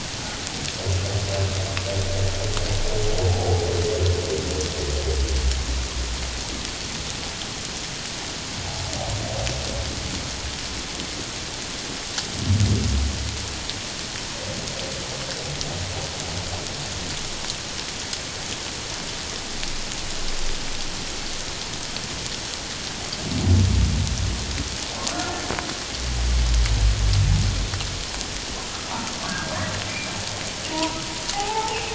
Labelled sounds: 3.3	3.7	humpback whale, 0.78 to 0.88 kHz
29.3	29.6	humpback whale, 1.3 to 1.7 kHz
29.9	31.0	humpback whale, 0.88 to 2.5 kHz
31.3	31.9	humpback whale, 0.78 to 2.9 kHz

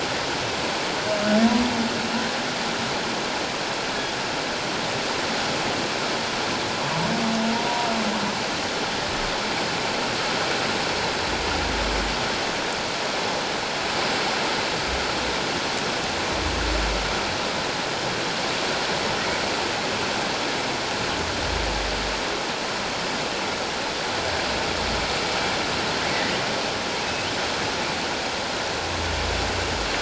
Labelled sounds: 27.0	27.3	humpback whale, 2.5 to 2.7 kHz

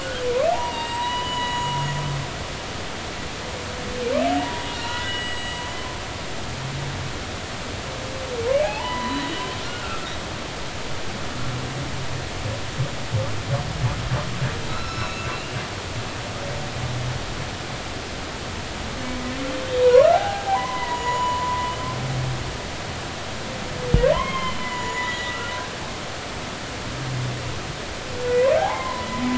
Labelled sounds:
0.5	1.7	humpback whale, 0.80 to 7.7 kHz
4.4	5.6	humpback whale, 0.90 to 7.8 kHz
8.6	10.0	humpback whale, 0.80 to 4.0 kHz
14.7	15.6	humpback whale, 1.2 to 5.4 kHz
19.8	21.7	humpback whale, 0.80 to 7.0 kHz
24.1	25.5	humpback whale, 0.93 to 7.0 kHz
28.3	29.1	humpback whale, 0.80 to 2.3 kHz

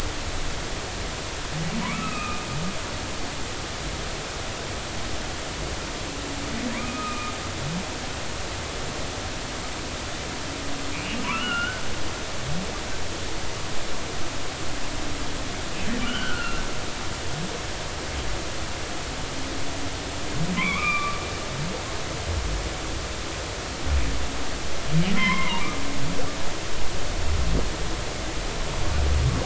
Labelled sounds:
1.8	2.5	humpback whale, 0.93 to 2.7 kHz
6.7	7.3	humpback whale, 0.96 to 2.6 kHz
11.0	11.8	humpback whale, 0.93 to 3.0 kHz
16.0	16.6	humpback whale, 1.2 to 3.3 kHz
20.6	21.2	humpback whale, 0.96 to 2.7 kHz
25.2	25.6	humpback whale, 0.86 to 5.4 kHz

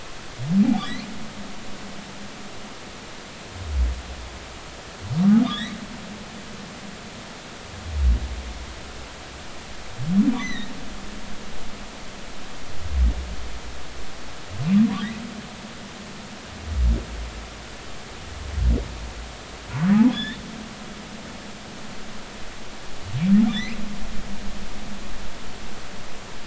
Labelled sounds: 5.4	5.8	humpback whale, 1.6 to 4.1 kHz
10.4	10.7	humpback whale, 1.8 to 4.1 kHz
20.1	20.4	humpback whale, 1.6 to 3.7 kHz
23.5	23.8	humpback whale, 1.7 to 4.3 kHz

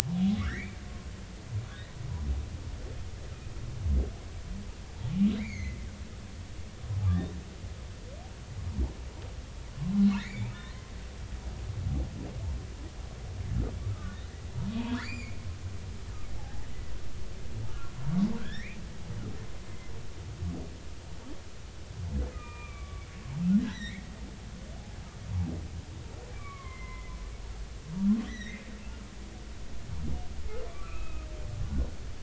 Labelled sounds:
0.4	0.8	humpback whale, 1.1 to 5.8 kHz
5.4	5.8	humpback whale, 1.9 to 6.9 kHz
9.7	10.9	humpback whale, 0.96 to 4.3 kHz
13.9	15.5	humpback whale, 1.1 to 5.0 kHz
16.4	16.7	humpback whale, 0.80 to 0.96 kHz
17.7	18.8	humpback whale, 1.0 to 3.9 kHz
22.3	23.1	humpback whale, 0.90 to 2.5 kHz
23.6	24.0	humpback whale, 1.4 to 6.0 kHz
26.3	27.1	humpback whale, 0.96 to 2.4 kHz
28.3	28.7	humpback whale, 1.7 to 6.1 kHz
30.7	31.3	humpback whale, 1.1 to 2.7 kHz

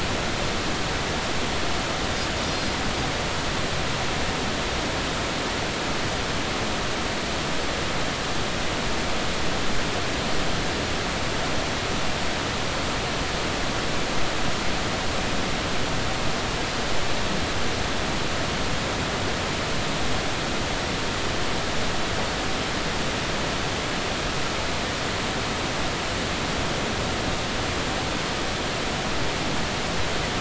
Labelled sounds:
2.4	2.8	Pacific white-sided dolphin, 4.8 to 5.0 kHz

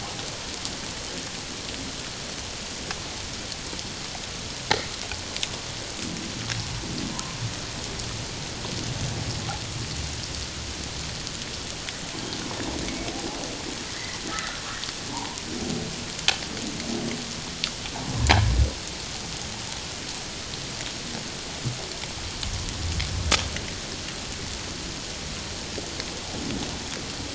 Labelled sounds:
7.1	7.4	humpback whale, 0.91 to 1.1 kHz
13.9	14.6	humpback whale, 1.2 to 2.1 kHz
15.1	15.4	humpback whale, 0.78 to 1.1 kHz

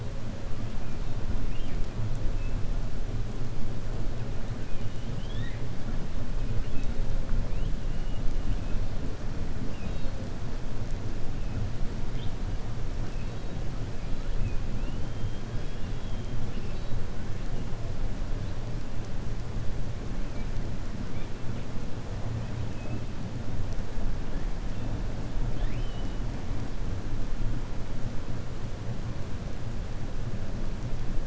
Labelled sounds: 4.6	5.6	killer whale, 1.7 to 3.9 kHz
9.6	10.1	killer whale, 2.5 to 4.4 kHz
15.1	16.9	killer whale, 2.4 to 5.3 kHz
25.4	26.2	killer whale, 0.84 to 4.4 kHz

